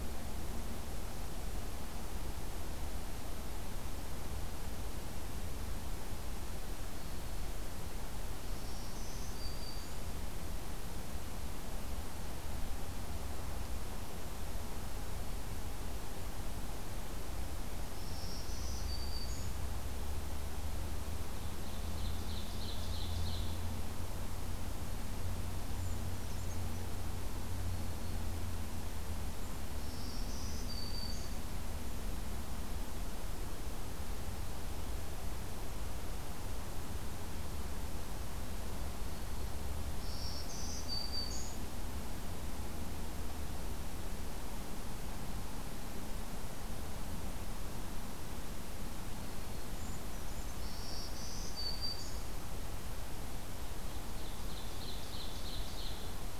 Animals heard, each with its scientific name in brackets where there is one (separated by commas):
Black-throated Green Warbler (Setophaga virens), Ovenbird (Seiurus aurocapilla), Brown Creeper (Certhia americana)